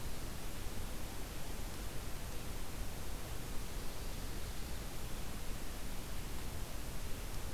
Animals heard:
forest ambience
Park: Marsh-Billings-Rockefeller National Historical Park